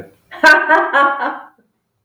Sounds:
Laughter